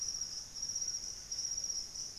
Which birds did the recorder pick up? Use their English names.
Great Antshrike